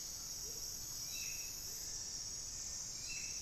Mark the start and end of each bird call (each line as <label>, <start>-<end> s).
Amazonian Motmot (Momotus momota), 0.0-3.4 s
Hauxwell's Thrush (Turdus hauxwelli), 0.0-3.4 s